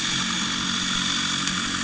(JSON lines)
{"label": "anthrophony, boat engine", "recorder": "HydroMoth"}